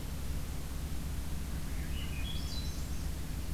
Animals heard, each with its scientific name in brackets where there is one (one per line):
Swainson's Thrush (Catharus ustulatus)